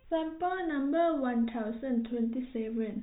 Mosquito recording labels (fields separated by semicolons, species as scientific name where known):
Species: no mosquito; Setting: cup